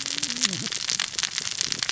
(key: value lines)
label: biophony, cascading saw
recorder: SoundTrap 600 or HydroMoth